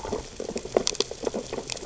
{"label": "biophony, sea urchins (Echinidae)", "recorder": "SoundTrap 600 or HydroMoth"}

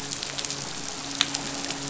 {"label": "biophony, midshipman", "recorder": "SoundTrap 500"}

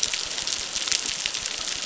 {"label": "biophony, crackle", "recorder": "SoundTrap 600"}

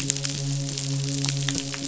{"label": "biophony, midshipman", "recorder": "SoundTrap 500"}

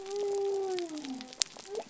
{"label": "biophony", "recorder": "SoundTrap 300"}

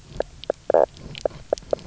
{"label": "biophony, knock croak", "recorder": "SoundTrap 300"}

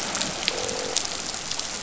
{"label": "biophony, croak", "recorder": "SoundTrap 500"}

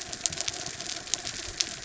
{"label": "anthrophony, mechanical", "recorder": "SoundTrap 300"}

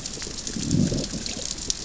{"label": "biophony, growl", "recorder": "SoundTrap 600 or HydroMoth"}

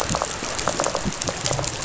{"label": "biophony, rattle", "recorder": "SoundTrap 500"}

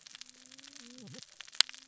{"label": "biophony, cascading saw", "recorder": "SoundTrap 600 or HydroMoth"}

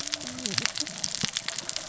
{"label": "biophony, cascading saw", "recorder": "SoundTrap 600 or HydroMoth"}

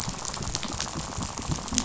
{"label": "biophony, rattle", "recorder": "SoundTrap 500"}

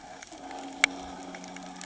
{"label": "anthrophony, boat engine", "recorder": "HydroMoth"}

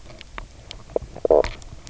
{"label": "biophony, knock croak", "recorder": "SoundTrap 300"}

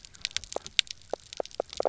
{"label": "biophony, knock croak", "recorder": "SoundTrap 300"}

